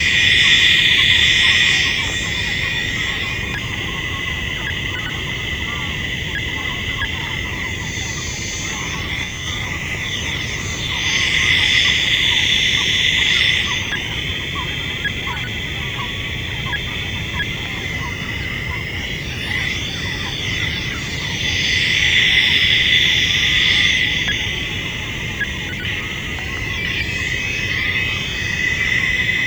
Is the sound unnatural?
yes